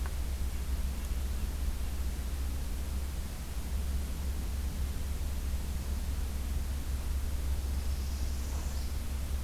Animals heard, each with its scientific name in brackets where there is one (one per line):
Northern Parula (Setophaga americana)